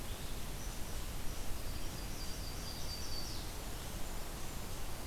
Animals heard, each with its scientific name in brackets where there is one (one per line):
unknown mammal
Blackburnian Warbler (Setophaga fusca)
Red-eyed Vireo (Vireo olivaceus)
Yellow-rumped Warbler (Setophaga coronata)